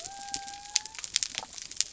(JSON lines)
{"label": "biophony", "recorder": "SoundTrap 300"}